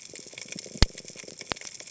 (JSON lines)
{"label": "biophony", "recorder": "HydroMoth"}